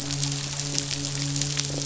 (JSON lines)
{"label": "biophony, midshipman", "recorder": "SoundTrap 500"}